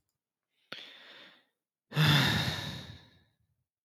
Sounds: Sigh